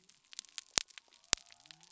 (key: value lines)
label: biophony
recorder: SoundTrap 300